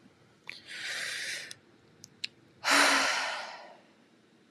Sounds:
Sigh